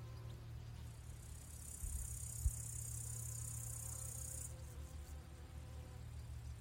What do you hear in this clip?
Tettigonia cantans, an orthopteran